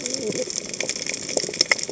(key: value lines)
label: biophony, cascading saw
recorder: HydroMoth